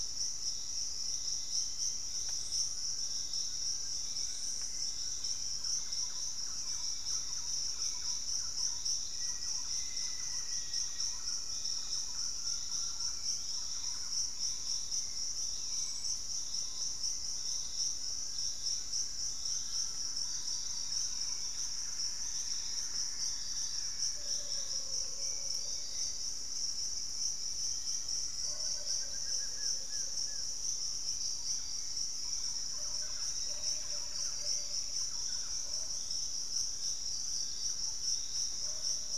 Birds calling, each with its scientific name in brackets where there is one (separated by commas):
unidentified bird, Black-faced Antthrush (Formicarius analis), Fasciated Antshrike (Cymbilaimus lineatus), Grayish Mourner (Rhytipterna simplex), Hauxwell's Thrush (Turdus hauxwelli), Buff-throated Woodcreeper (Xiphorhynchus guttatus), Pygmy Antwren (Myrmotherula brachyura), Thrush-like Wren (Campylorhynchus turdinus), Piratic Flycatcher (Legatus leucophaius)